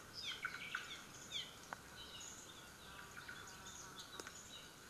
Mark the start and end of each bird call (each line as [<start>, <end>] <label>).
[0.10, 0.40] Apapane (Himatione sanguinea)
[0.80, 1.60] Apapane (Himatione sanguinea)
[2.10, 2.50] Warbling White-eye (Zosterops japonicus)
[2.90, 3.50] Omao (Myadestes obscurus)
[3.40, 3.90] Warbling White-eye (Zosterops japonicus)
[4.30, 4.70] Warbling White-eye (Zosterops japonicus)